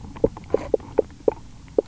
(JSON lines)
{"label": "biophony, knock croak", "recorder": "SoundTrap 300"}